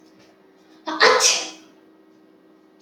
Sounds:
Sneeze